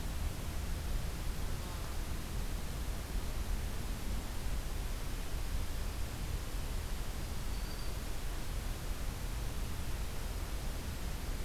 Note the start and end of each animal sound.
7.1s-8.1s: Black-throated Green Warbler (Setophaga virens)

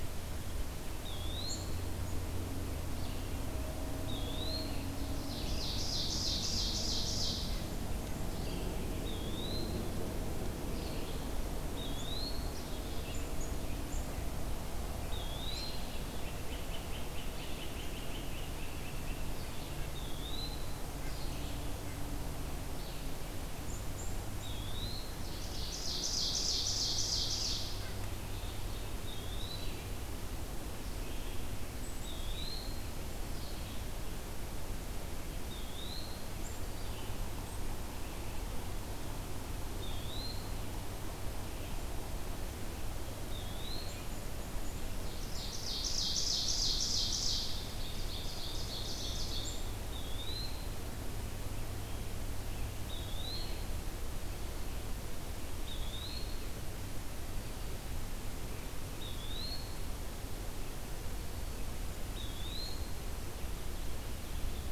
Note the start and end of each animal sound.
0.9s-1.7s: Eastern Wood-Pewee (Contopus virens)
1.4s-2.2s: Black-capped Chickadee (Poecile atricapillus)
2.9s-37.3s: Red-eyed Vireo (Vireo olivaceus)
3.8s-4.9s: Eastern Wood-Pewee (Contopus virens)
5.1s-7.8s: Ovenbird (Seiurus aurocapilla)
8.9s-9.9s: Eastern Wood-Pewee (Contopus virens)
11.6s-12.6s: Eastern Wood-Pewee (Contopus virens)
12.4s-14.2s: Black-capped Chickadee (Poecile atricapillus)
14.9s-15.9s: Eastern Wood-Pewee (Contopus virens)
16.0s-19.4s: Great Crested Flycatcher (Myiarchus crinitus)
19.8s-20.8s: Eastern Wood-Pewee (Contopus virens)
20.9s-22.1s: Red-breasted Nuthatch (Sitta canadensis)
23.6s-24.5s: Black-capped Chickadee (Poecile atricapillus)
24.2s-25.1s: Eastern Wood-Pewee (Contopus virens)
25.0s-28.2s: Ovenbird (Seiurus aurocapilla)
29.0s-29.8s: Eastern Wood-Pewee (Contopus virens)
31.6s-32.3s: Black-capped Chickadee (Poecile atricapillus)
31.9s-32.9s: Eastern Wood-Pewee (Contopus virens)
35.3s-36.2s: Eastern Wood-Pewee (Contopus virens)
36.3s-37.6s: Black-capped Chickadee (Poecile atricapillus)
39.7s-40.5s: Eastern Wood-Pewee (Contopus virens)
43.2s-44.0s: Eastern Wood-Pewee (Contopus virens)
43.8s-49.7s: Black-capped Chickadee (Poecile atricapillus)
45.0s-49.8s: Ovenbird (Seiurus aurocapilla)
49.7s-50.8s: Eastern Wood-Pewee (Contopus virens)
52.8s-53.8s: Eastern Wood-Pewee (Contopus virens)
55.4s-56.6s: Eastern Wood-Pewee (Contopus virens)
58.9s-59.8s: Eastern Wood-Pewee (Contopus virens)
61.9s-63.1s: Eastern Wood-Pewee (Contopus virens)

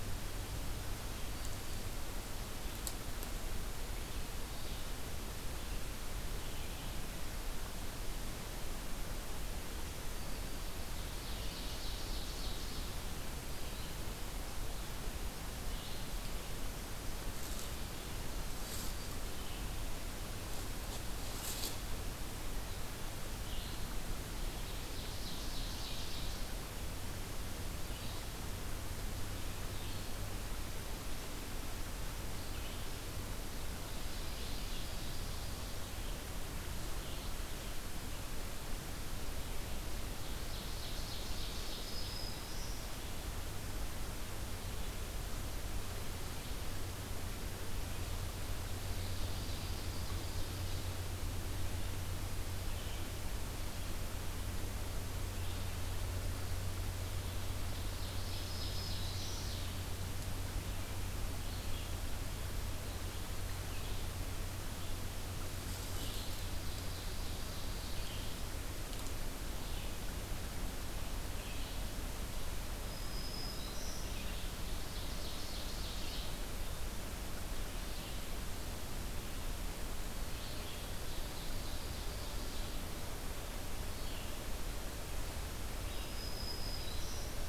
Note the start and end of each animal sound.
10.5s-13.2s: Ovenbird (Seiurus aurocapilla)
24.4s-26.7s: Ovenbird (Seiurus aurocapilla)
33.7s-36.3s: Ovenbird (Seiurus aurocapilla)
40.0s-42.3s: Ovenbird (Seiurus aurocapilla)
41.5s-43.1s: Black-throated Green Warbler (Setophaga virens)
48.8s-51.1s: Ovenbird (Seiurus aurocapilla)
57.5s-59.9s: Ovenbird (Seiurus aurocapilla)
58.2s-59.6s: Black-throated Green Warbler (Setophaga virens)
66.2s-68.2s: Ovenbird (Seiurus aurocapilla)
72.8s-74.3s: Black-throated Green Warbler (Setophaga virens)
74.6s-76.5s: Ovenbird (Seiurus aurocapilla)
80.6s-83.2s: Ovenbird (Seiurus aurocapilla)
85.7s-87.5s: Black-throated Green Warbler (Setophaga virens)

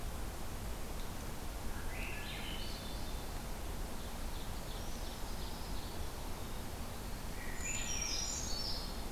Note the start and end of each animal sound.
1.6s-3.3s: Swainson's Thrush (Catharus ustulatus)
3.7s-6.0s: Ovenbird (Seiurus aurocapilla)
4.5s-6.0s: Brown Creeper (Certhia americana)
7.2s-8.8s: Swainson's Thrush (Catharus ustulatus)
7.4s-9.1s: Brown Creeper (Certhia americana)

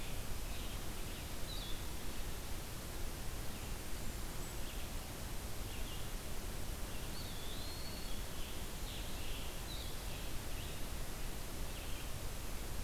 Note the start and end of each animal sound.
0.0s-10.1s: Blue-headed Vireo (Vireo solitarius)
3.5s-4.8s: Blackburnian Warbler (Setophaga fusca)
6.9s-8.1s: Eastern Wood-Pewee (Contopus virens)
8.0s-10.8s: Scarlet Tanager (Piranga olivacea)

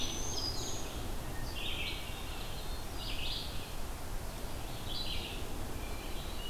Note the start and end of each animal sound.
0.0s-1.0s: Black-throated Green Warbler (Setophaga virens)
0.0s-1.2s: Ovenbird (Seiurus aurocapilla)
0.0s-5.5s: Red-eyed Vireo (Vireo olivaceus)
1.5s-2.9s: Hermit Thrush (Catharus guttatus)
5.7s-6.5s: Hermit Thrush (Catharus guttatus)

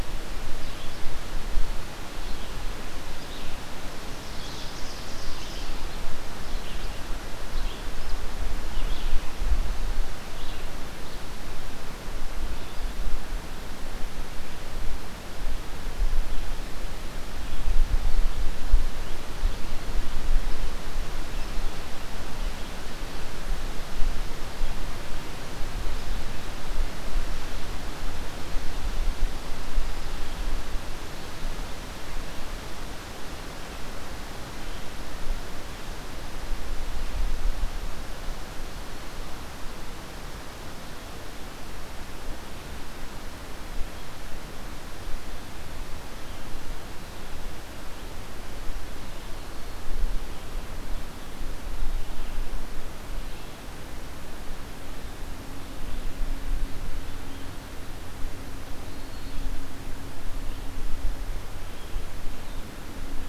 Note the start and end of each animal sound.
0.0s-12.9s: Red-eyed Vireo (Vireo olivaceus)
4.0s-6.0s: Ovenbird (Seiurus aurocapilla)
46.2s-63.3s: Red-eyed Vireo (Vireo olivaceus)
58.7s-59.5s: Black-throated Green Warbler (Setophaga virens)

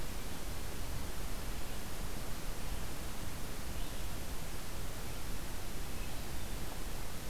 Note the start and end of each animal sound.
1.4s-7.3s: Red-eyed Vireo (Vireo olivaceus)

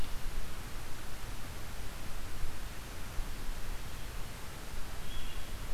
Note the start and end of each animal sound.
0.0s-5.7s: Blue-headed Vireo (Vireo solitarius)

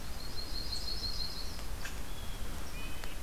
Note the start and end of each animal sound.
0.1s-1.6s: Yellow-rumped Warbler (Setophaga coronata)
1.7s-2.0s: Red Squirrel (Tamiasciurus hudsonicus)
2.0s-2.6s: Blue Jay (Cyanocitta cristata)
2.6s-3.2s: Red-breasted Nuthatch (Sitta canadensis)

